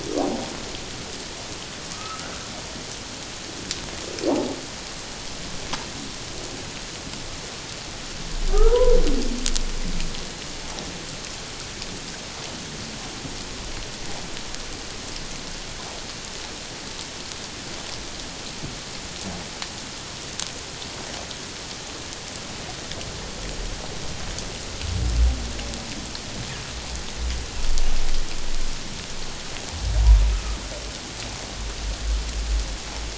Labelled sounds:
1.9	2.3	humpback whale, 1.2 to 1.5 kHz
4.3	4.5	humpback whale, 0.78 to 1.0 kHz
8.5	8.9	humpback whale, 0.88 to 1.5 kHz
30.3	30.6	humpback whale, 1.2 to 1.3 kHz

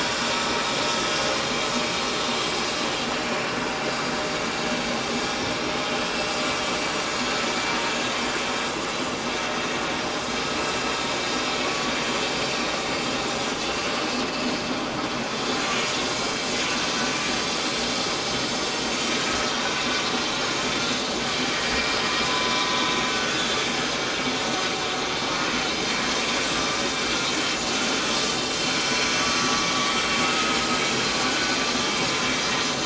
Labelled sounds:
15.5	15.9	vessel noise, 6.6 to 6.8 kHz
19.0	19.8	vessel noise, 5.6 to 5.9 kHz
22.2	22.7	vessel noise, 0.97 to 1.1 kHz
23.1	23.4	vessel noise, 1.4 to 1.5 kHz
29.4	29.7	vessel noise, 1.1 to 1.2 kHz
30.2	31.0	vessel noise, 1.2 to 4.0 kHz
31.3	31.6	vessel noise, 1.5 to 1.6 kHz

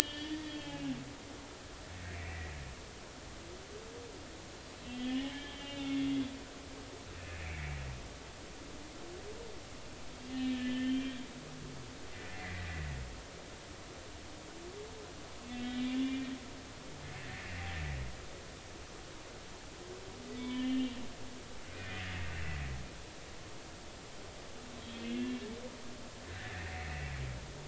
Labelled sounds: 0.3	2.4	humpback whale, 1.7 to 4.7 kHz
4.8	6.1	humpback whale, 1.7 to 3.7 kHz
7.2	7.8	humpback whale, 2.1 to 2.8 kHz
10.3	11.2	humpback whale, 1.7 to 3.9 kHz
12.1	12.5	humpback whale, 1.7 to 2.2 kHz
15.5	16.4	humpback whale, 1.8 to 3.3 kHz
20.4	21.0	humpback whale, 0.93 to 3.6 kHz
21.7	22.0	humpback whale, 2.3 to 2.5 kHz
25.2	25.5	humpback whale, 2.7 to 2.8 kHz
26.4	26.7	humpback whale, 1.6 to 2.1 kHz

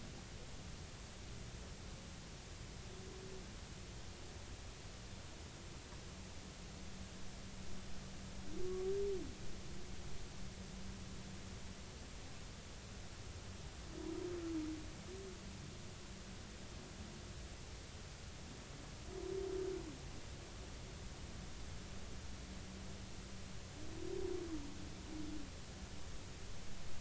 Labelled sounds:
8.6	8.9	humpback whale, 1.1 to 1.2 kHz

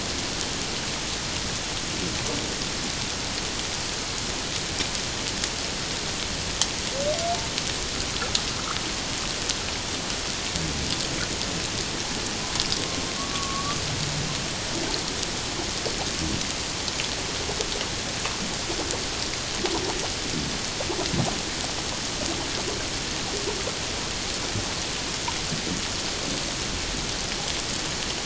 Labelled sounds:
13.2	13.8	humpback whale, 1.1 to 1.2 kHz

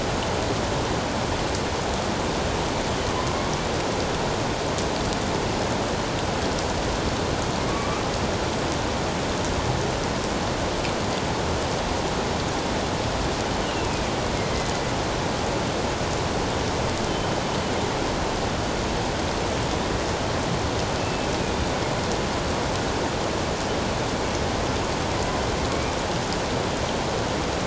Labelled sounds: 7.7	8.0	killer whale, northern resident, 1.1 to 1.3 kHz
13.6	14.0	killer whale, northern resident, A clan, AA subclan, A04 pod, 2.4 to 3.0 kHz
21.0	21.3	killer whale, northern resident, A clan, AA subclan, A04 pod, 2.6 to 2.7 kHz

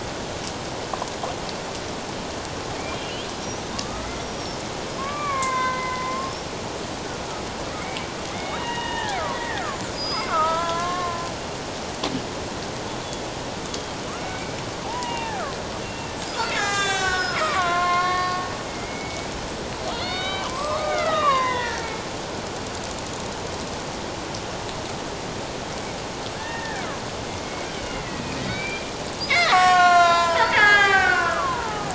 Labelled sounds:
3.0	6.3	killer whale, Bigg's (transient), 0.97 to 6.0 kHz
8.3	11.3	killer whale, Bigg's (transient), 0.78 to 5.1 kHz
13.7	14.5	killer whale, Bigg's (transient), 2.1 to 3.5 kHz
14.8	16.1	killer whale, Bigg's (transient), 0.78 to 3.0 kHz
16.5	18.4	killer whale, Bigg's (transient), 0.97 to 7.9 kHz
18.8	19.3	killer whale, Bigg's (transient), 2.0 to 2.3 kHz
19.9	21.9	killer whale, Bigg's (transient), 0.88 to 4.5 kHz
26.3	26.8	killer whale, Bigg's (transient), 1.5 to 3.7 kHz
28.1	31.9	killer whale, Bigg's (transient), 0.78 to 7.8 kHz

